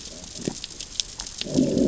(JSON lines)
{"label": "biophony, growl", "recorder": "SoundTrap 600 or HydroMoth"}